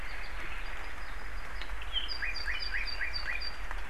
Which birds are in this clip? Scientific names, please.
Himatione sanguinea